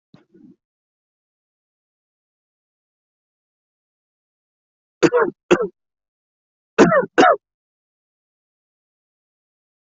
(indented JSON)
{
  "expert_labels": [
    {
      "quality": "ok",
      "cough_type": "dry",
      "dyspnea": false,
      "wheezing": false,
      "stridor": false,
      "choking": false,
      "congestion": false,
      "nothing": true,
      "diagnosis": "upper respiratory tract infection",
      "severity": "mild"
    }
  ],
  "age": 24,
  "gender": "male",
  "respiratory_condition": false,
  "fever_muscle_pain": false,
  "status": "healthy"
}